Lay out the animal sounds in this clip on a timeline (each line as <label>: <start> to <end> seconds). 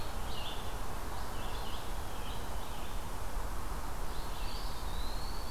Scarlet Tanager (Piranga olivacea): 0.0 to 0.8 seconds
Red-eyed Vireo (Vireo olivaceus): 0.0 to 5.5 seconds
Eastern Wood-Pewee (Contopus virens): 4.3 to 5.5 seconds